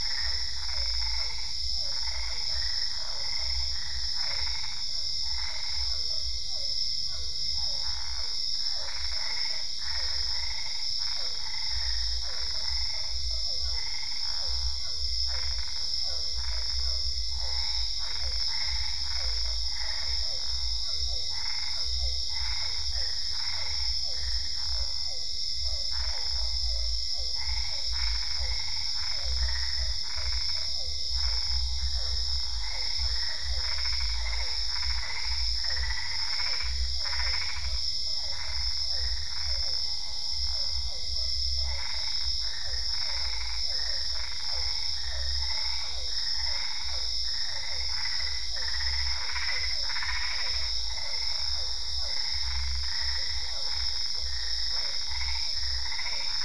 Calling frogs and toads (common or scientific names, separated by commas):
Boana albopunctata, Physalaemus cuvieri, Usina tree frog